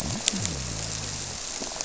{"label": "biophony", "recorder": "SoundTrap 300"}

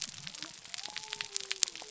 {"label": "biophony", "recorder": "SoundTrap 300"}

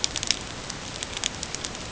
{"label": "ambient", "recorder": "HydroMoth"}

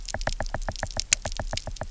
{"label": "biophony, knock", "recorder": "SoundTrap 300"}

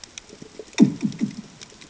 {"label": "anthrophony, bomb", "recorder": "HydroMoth"}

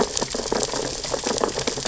{"label": "biophony, sea urchins (Echinidae)", "recorder": "SoundTrap 600 or HydroMoth"}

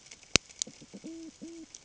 {"label": "ambient", "recorder": "HydroMoth"}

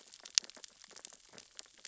{"label": "biophony, sea urchins (Echinidae)", "recorder": "SoundTrap 600 or HydroMoth"}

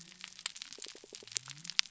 {"label": "biophony", "recorder": "SoundTrap 300"}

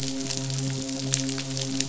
{"label": "biophony, midshipman", "recorder": "SoundTrap 500"}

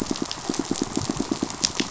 {"label": "biophony, pulse", "recorder": "SoundTrap 500"}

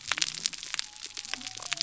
{"label": "biophony", "recorder": "SoundTrap 300"}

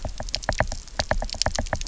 {"label": "biophony, knock", "recorder": "SoundTrap 300"}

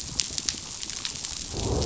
{"label": "biophony, growl", "recorder": "SoundTrap 500"}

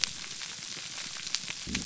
{"label": "biophony", "recorder": "SoundTrap 300"}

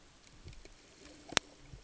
{"label": "ambient", "recorder": "HydroMoth"}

